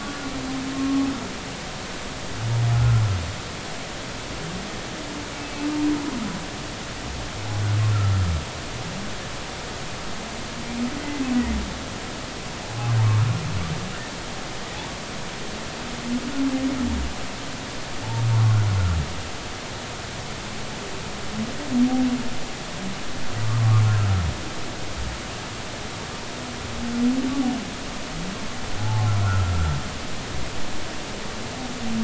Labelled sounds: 0.0	1.1	humpback whale, 1.1 to 1.5 kHz
2.7	3.0	humpback whale, 1.3 to 1.5 kHz
11.0	11.2	humpback whale, 1.9 to 2.1 kHz
28.8	29.5	humpback whale, 0.80 to 1.5 kHz

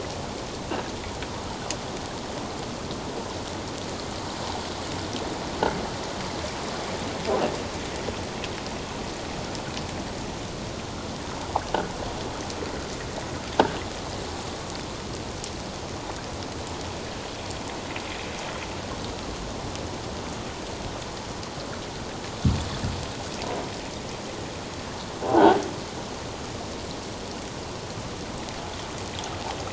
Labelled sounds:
25.2	25.6	croaking sound likely from a nearby submerged object, 0.78 to 1.1 kHz

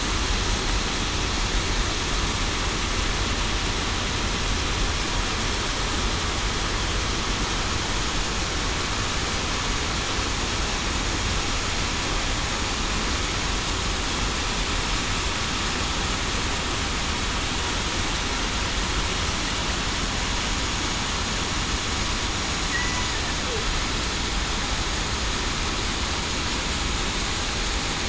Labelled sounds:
22.7	23.0	killer whale, southern resident, 1.9 to 2.0 kHz

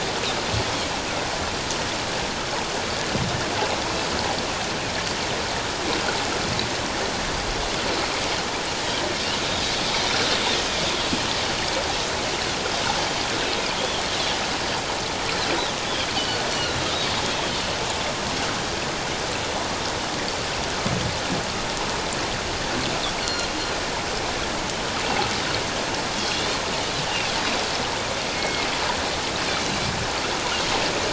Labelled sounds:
16.1	16.4	Pacific white-sided dolphin, 2.8 to 3.1 kHz
23.2	23.5	Pacific white-sided dolphin, 2.8 to 7.3 kHz
26.1	26.6	Pacific white-sided dolphin, 3.2 to 3.8 kHz
27.1	27.3	Pacific white-sided dolphin, 2.5 to 2.9 kHz
28.3	28.7	Pacific white-sided dolphin, 2.1 to 2.2 kHz

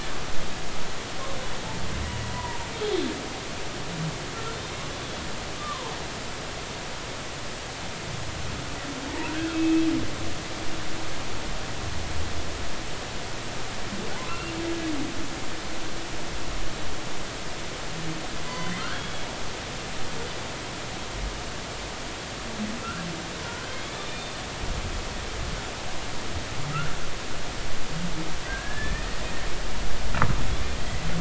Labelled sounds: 2.3	2.7	humpback whale, 0.90 to 1.1 kHz
5.6	5.9	humpback whale, 0.83 to 1.3 kHz
9.2	9.9	humpback whale, 1.3 to 2.7 kHz
14.1	14.5	humpback whale, 0.80 to 2.8 kHz
18.4	19.3	humpback whale, 2.0 to 3.4 kHz
22.8	23.1	humpback whale, 1.3 to 1.7 kHz
23.7	24.3	humpback whale, 2.1 to 3.7 kHz
28.5	29.2	humpback whale, 1.5 to 2.6 kHz
30.8	31.1	humpback whale, 1.9 to 2.0 kHz

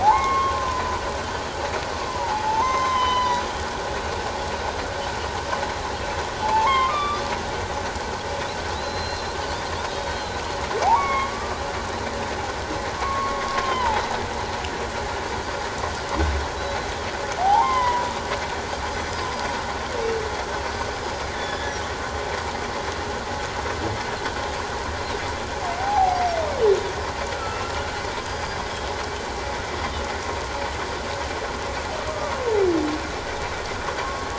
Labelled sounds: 0.0	1.0	humpback whale, 0.78 to 3.3 kHz
2.1	3.5	humpback whale, 0.78 to 6.3 kHz
2.6	3.4	Pacific white-sided dolphin, 1.9 to 3.1 kHz
6.4	7.2	humpback whale, 0.81 to 3.8 kHz
8.7	9.4	Pacific white-sided dolphin, 3.5 to 4.2 kHz
9.7	10.4	Pacific white-sided dolphin, 3.2 to 4.3 kHz
10.8	11.6	humpback whale, 0.78 to 2.3 kHz
13.0	14.2	humpback whale, 0.81 to 4.0 kHz
17.4	18.1	humpback whale, 0.78 to 3.2 kHz
20.9	21.2	Pacific white-sided dolphin, 4.9 to 5.1 kHz
21.3	21.8	humpback whale, 1.6 to 3.7 kHz
25.8	26.2	humpback whale, 0.78 to 0.91 kHz
27.3	27.7	humpback whale, 1.2 to 1.4 kHz
28.2	28.6	Pacific white-sided dolphin, 4.8 to 5.0 kHz
34.0	34.3	humpback whale, 0.97 to 1.1 kHz

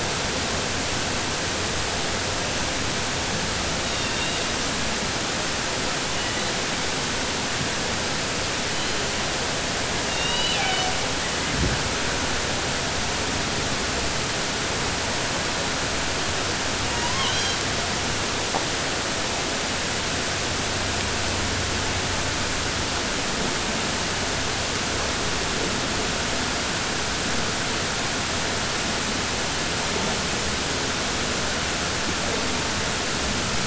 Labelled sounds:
3.8	4.4	killer whale, southern resident, 1.8 to 4.7 kHz
10.0	10.9	killer whale, southern resident, 0.75 to 5.3 kHz
16.9	17.6	killer whale, southern resident, 0.95 to 7.3 kHz

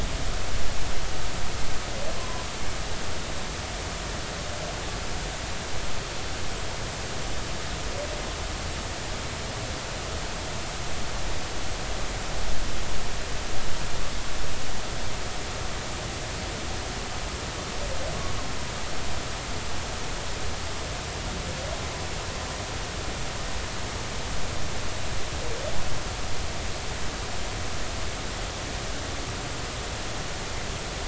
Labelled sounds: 2.2	2.4	humpback whale, 0.96 to 1.1 kHz

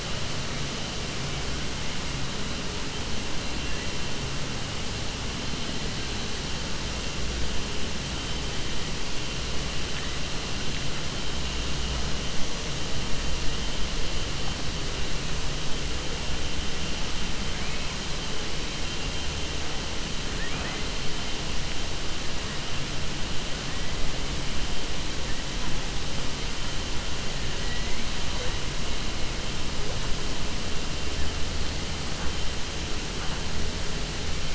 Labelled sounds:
20.3	20.8	killer whale, 0.64 to 2.6 kHz

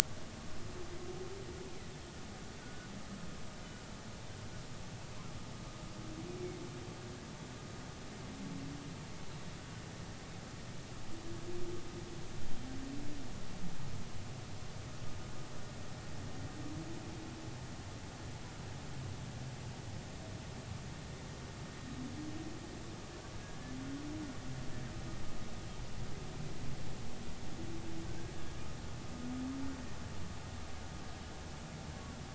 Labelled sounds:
2.6	2.9	humpback whale, 1.4 to 1.6 kHz
12.4	12.7	humpback whale, 3.1 to 3.2 kHz
23.4	23.7	humpback whale, 1.6 to 1.8 kHz
28.1	28.3	humpback whale, 1.5 to 1.7 kHz

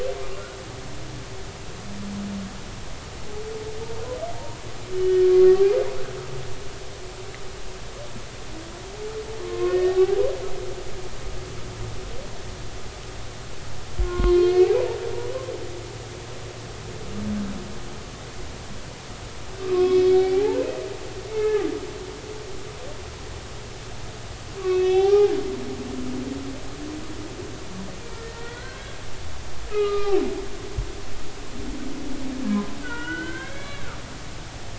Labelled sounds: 4.3	4.6	humpback whale, 0.90 to 1.0 kHz
4.9	5.3	humpback whale, 1.8 to 3.0 kHz
9.4	10.2	humpback whale, 0.80 to 1.9 kHz
14.0	14.8	humpback whale, 0.99 to 2.7 kHz
19.7	20.8	humpback whale, 0.80 to 2.7 kHz
21.3	21.7	humpback whale, 1.2 to 2.7 kHz
24.6	25.3	humpback whale, 0.80 to 4.0 kHz
28.2	29.0	humpback whale, 1.3 to 3.4 kHz
29.7	30.2	humpback whale, 1.1 to 4.1 kHz
32.5	33.9	humpback whale, 0.90 to 4.0 kHz

